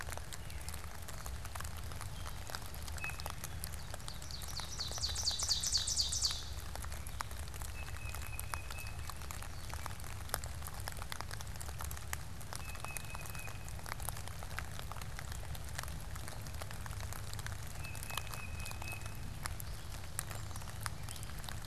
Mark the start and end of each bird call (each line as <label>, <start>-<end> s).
Tufted Titmouse (Baeolophus bicolor), 2.9-3.6 s
Ovenbird (Seiurus aurocapilla), 3.9-6.7 s
Tufted Titmouse (Baeolophus bicolor), 7.4-9.1 s
Tufted Titmouse (Baeolophus bicolor), 12.3-14.0 s
Tufted Titmouse (Baeolophus bicolor), 17.6-19.3 s